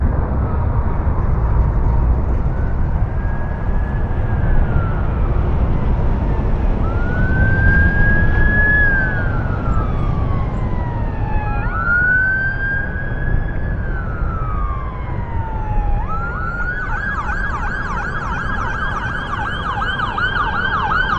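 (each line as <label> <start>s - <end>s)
A constant whooshing sound resembling wind. 0.0s - 21.2s
Ambulance sirens echo in the background, gradually growing louder and changing pattern as they approach. 2.9s - 21.2s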